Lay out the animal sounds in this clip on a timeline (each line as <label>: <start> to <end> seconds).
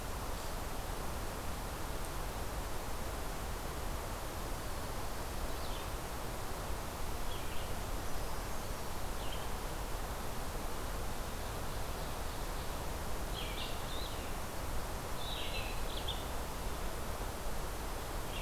Red-eyed Vireo (Vireo olivaceus): 5.5 to 9.5 seconds
Brown Creeper (Certhia americana): 7.8 to 9.1 seconds
Ovenbird (Seiurus aurocapilla): 11.1 to 12.8 seconds
Red-eyed Vireo (Vireo olivaceus): 13.3 to 16.3 seconds